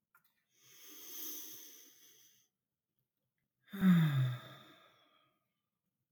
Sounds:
Sigh